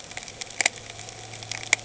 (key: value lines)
label: anthrophony, boat engine
recorder: HydroMoth